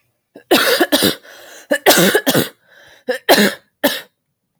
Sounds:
Cough